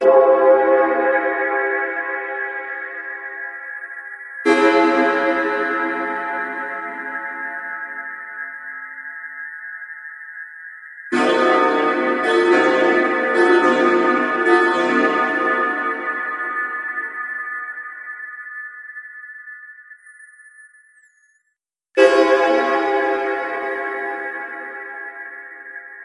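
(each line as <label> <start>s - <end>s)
A church bell chimes with an echo. 0.0s - 11.2s
Church bells ringing repeatedly. 11.1s - 16.0s
A church bell is echoing. 16.0s - 22.0s
A church bell chimes with an echo. 21.9s - 26.0s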